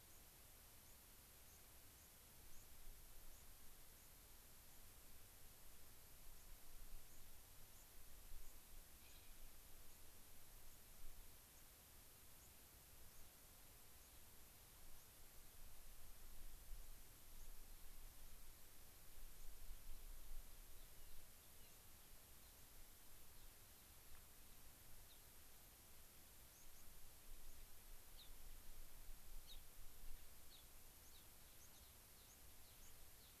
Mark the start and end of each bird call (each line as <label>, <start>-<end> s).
White-crowned Sparrow (Zonotrichia leucophrys), 0.0-14.3 s
White-crowned Sparrow (Zonotrichia leucophrys), 14.9-15.1 s
White-crowned Sparrow (Zonotrichia leucophrys), 17.3-17.6 s
White-crowned Sparrow (Zonotrichia leucophrys), 19.3-19.5 s
Gray-crowned Rosy-Finch (Leucosticte tephrocotis), 19.8-24.2 s
Gray-crowned Rosy-Finch (Leucosticte tephrocotis), 25.0-25.2 s
White-crowned Sparrow (Zonotrichia leucophrys), 26.5-27.7 s
Gray-crowned Rosy-Finch (Leucosticte tephrocotis), 28.1-28.3 s
Gray-crowned Rosy-Finch (Leucosticte tephrocotis), 29.4-29.6 s
Gray-crowned Rosy-Finch (Leucosticte tephrocotis), 30.4-33.4 s
White-crowned Sparrow (Zonotrichia leucophrys), 31.0-33.0 s